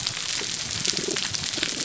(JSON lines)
{"label": "biophony", "recorder": "SoundTrap 300"}